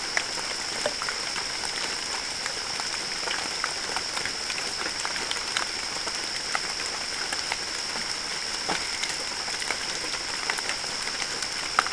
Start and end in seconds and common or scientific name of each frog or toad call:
none